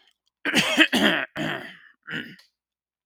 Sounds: Throat clearing